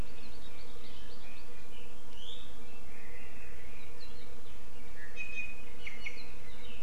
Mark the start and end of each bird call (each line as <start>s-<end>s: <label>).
0.0s-1.5s: Hawaii Amakihi (Chlorodrepanis virens)
5.1s-6.2s: Iiwi (Drepanis coccinea)